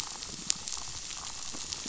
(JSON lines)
{"label": "biophony", "recorder": "SoundTrap 500"}